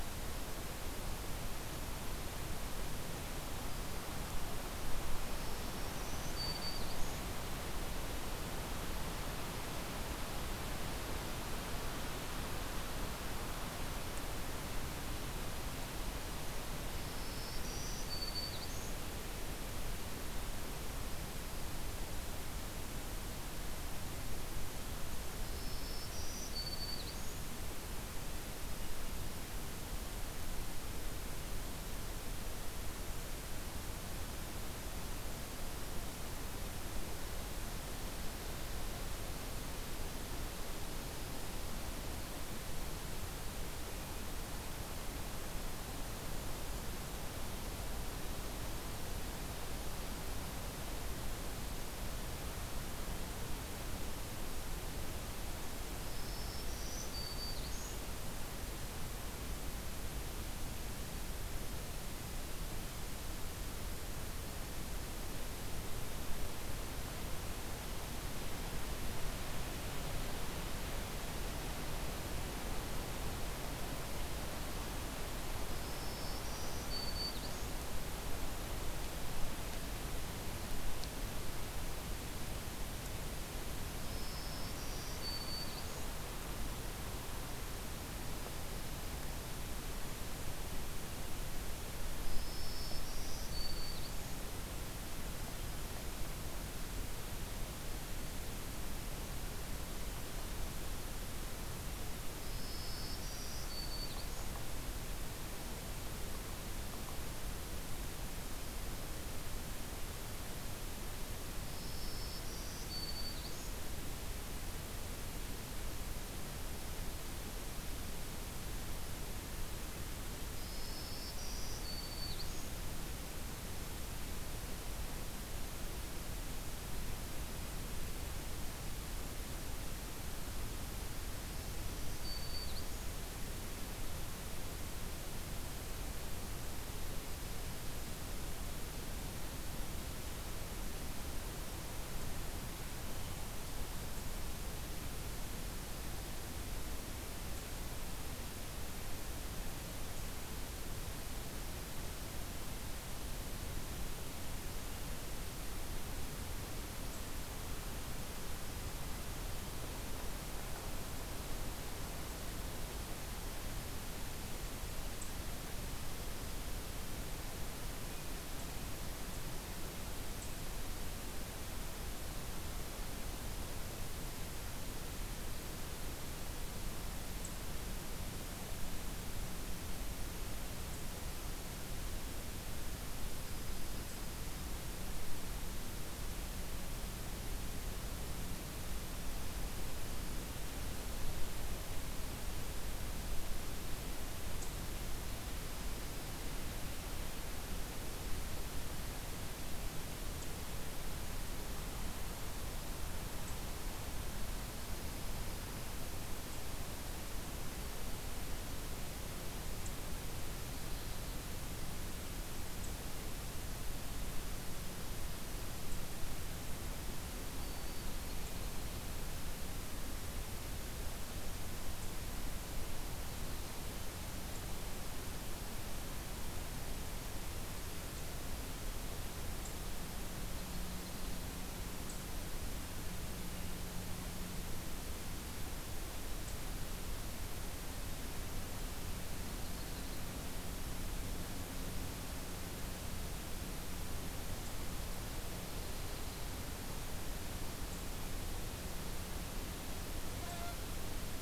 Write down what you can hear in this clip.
Black-throated Green Warbler